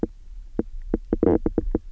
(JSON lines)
{"label": "biophony, knock croak", "recorder": "SoundTrap 300"}